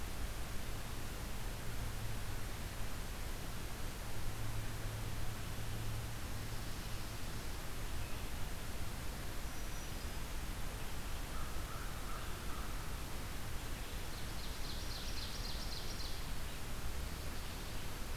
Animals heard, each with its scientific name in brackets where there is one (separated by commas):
Black-throated Green Warbler (Setophaga virens), Ovenbird (Seiurus aurocapilla), American Crow (Corvus brachyrhynchos)